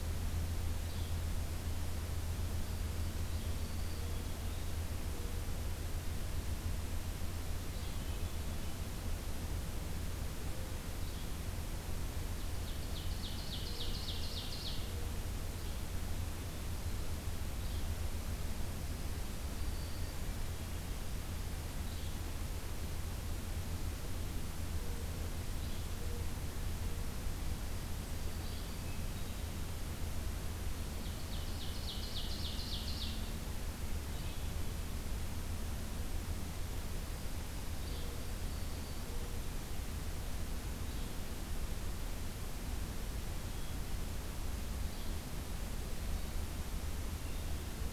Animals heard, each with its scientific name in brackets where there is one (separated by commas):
Hermit Thrush (Catharus guttatus), Ovenbird (Seiurus aurocapilla), Black-throated Green Warbler (Setophaga virens), Yellow-bellied Flycatcher (Empidonax flaviventris)